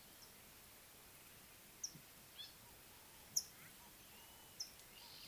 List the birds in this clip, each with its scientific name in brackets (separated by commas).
Mariqua Sunbird (Cinnyris mariquensis), Gray-backed Camaroptera (Camaroptera brevicaudata)